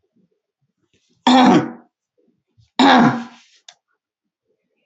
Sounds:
Throat clearing